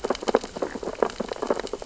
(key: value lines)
label: biophony, sea urchins (Echinidae)
recorder: SoundTrap 600 or HydroMoth